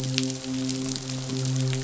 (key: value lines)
label: biophony, midshipman
recorder: SoundTrap 500